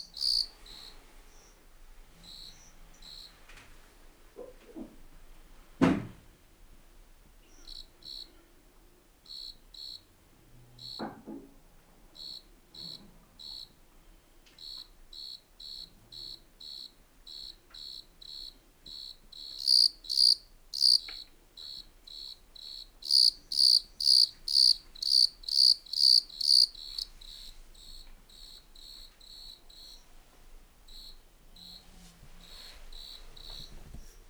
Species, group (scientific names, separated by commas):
Eumodicogryllus bordigalensis, Orthoptera